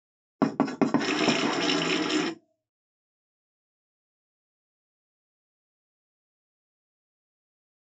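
First at 0.4 seconds, you can hear writing. While that goes on, at 1.0 seconds, a water tap can be heard.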